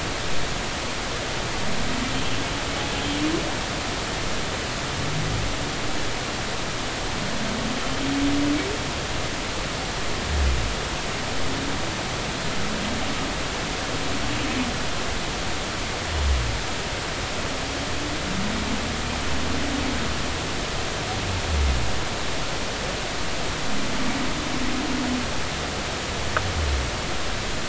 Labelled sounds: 2.9	3.2	humpback whale, 3.0 to 3.3 kHz

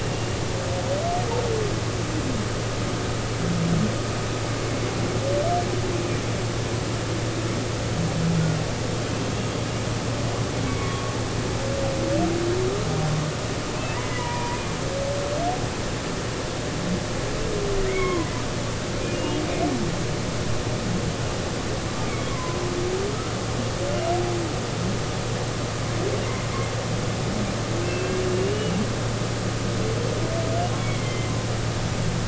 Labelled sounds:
10.6	11.1	humpback whale, 1.1 to 2.3 kHz
13.9	14.8	humpback whale, 0.90 to 2.5 kHz
17.9	18.3	humpback whale, 0.93 to 2.3 kHz
19.1	19.4	humpback whale, 2.8 to 2.9 kHz
22.3	22.6	humpback whale, 0.96 to 1.2 kHz
27.8	28.7	humpback whale, 2.4 to 3.0 kHz
30.8	31.3	humpback whale, 2.0 to 2.3 kHz

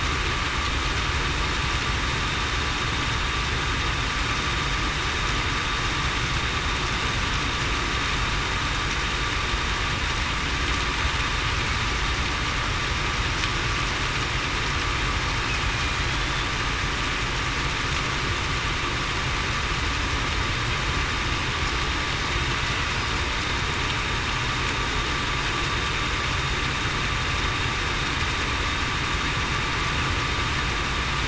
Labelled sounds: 16.0	16.5	killer whale, Bigg's (transient), 3.2 to 3.6 kHz

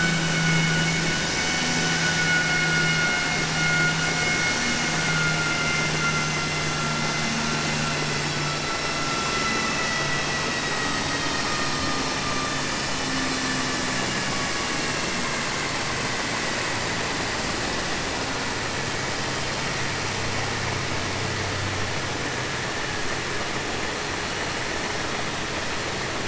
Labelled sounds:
13.8	15.1	vessel noise, 1.7 to 3.4 kHz

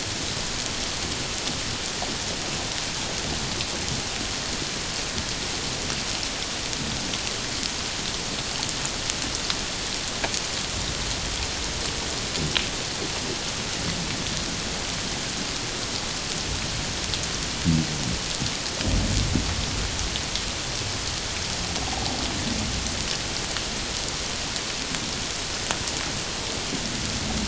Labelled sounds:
21.8	22.2	humpback whale, 0.78 to 0.94 kHz

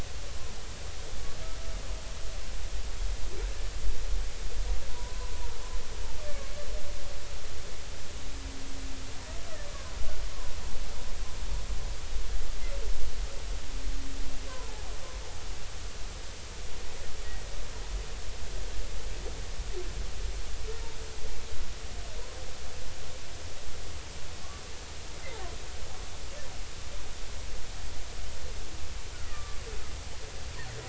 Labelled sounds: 4.9	5.3	humpback whale, 0.93 to 1.1 kHz
14.5	14.8	humpback whale, 0.83 to 1.2 kHz
29.3	29.6	humpback whale, 1.1 to 1.3 kHz

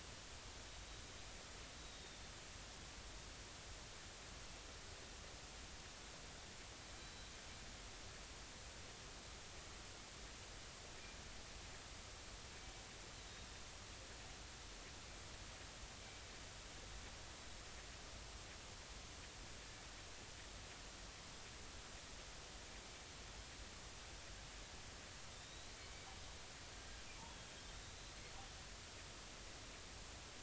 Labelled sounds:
1.8	2.2	killer whale, northern resident, 3.6 to 3.9 kHz
7.0	7.3	killer whale, northern resident, 3.8 to 4.1 kHz
25.3	25.8	killer whale, northern resident, 3.5 to 4.1 kHz
28.0	28.2	killer whale, northern resident, 3.9 to 4.2 kHz

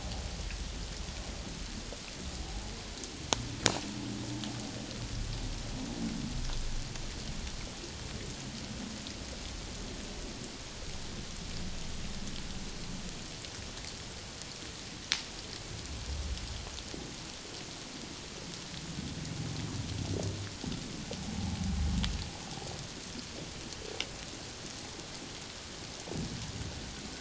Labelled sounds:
2.4	2.7	humpback whale, 0.78 to 0.91 kHz

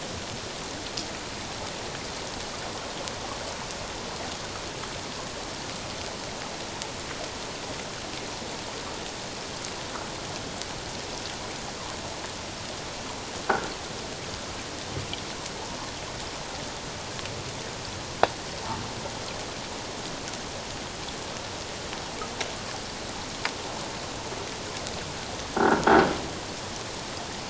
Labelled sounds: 25.6	25.8	croaking sound likely from a nearby submerged object, 1.3 to 1.7 kHz

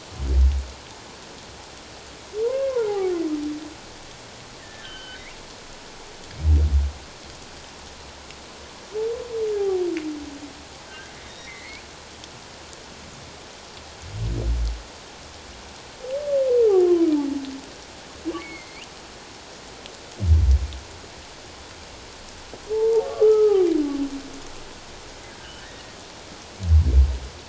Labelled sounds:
2.4	3.1	humpback whale, 0.78 to 1.1 kHz
4.6	5.2	humpback whale, 1.5 to 3.3 kHz
9.6	9.8	humpback whale, 0.78 to 0.84 kHz
10.9	11.8	humpback whale, 1.5 to 3.8 kHz
18.4	18.8	humpback whale, 2.0 to 2.5 kHz
22.7	23.6	humpback whale, 0.78 to 1.4 kHz
25.6	26.0	humpback whale, 1.7 to 1.9 kHz

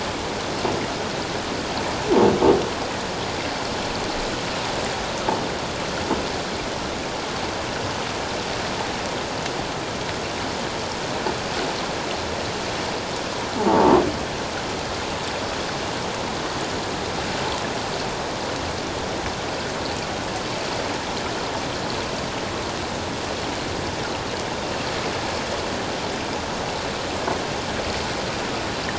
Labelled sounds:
13.6	14.0	croaking sound likely from a nearby submerged object, 0.78 to 1.0 kHz

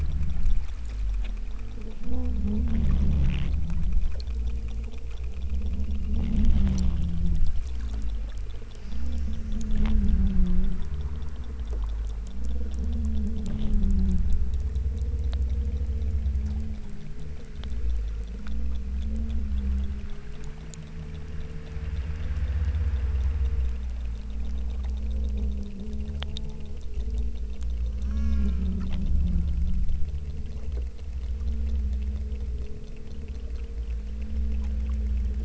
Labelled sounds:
27.9	28.9	killer whale, southern Alaska resident, 0.87 to 8.0 kHz

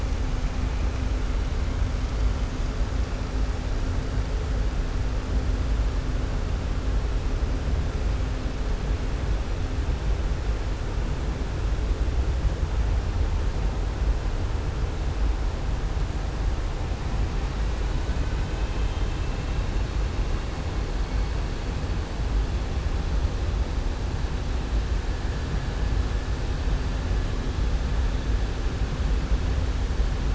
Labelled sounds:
18.2	19.6	vessel noise, 1.6 to 3.7 kHz

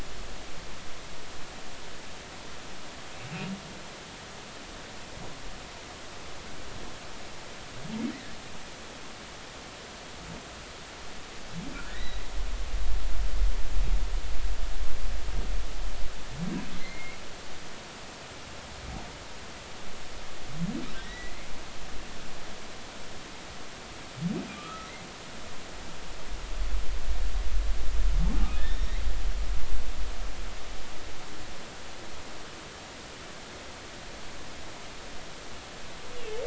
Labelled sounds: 11.9	12.2	humpback whale, 1.6 to 4.0 kHz
16.7	17.2	humpback whale, 2.0 to 2.3 kHz
21.0	21.5	humpback whale, 1.8 to 2.2 kHz
24.5	24.9	humpback whale, 1.1 to 1.4 kHz
28.6	29.0	humpback whale, 3.3 to 3.7 kHz

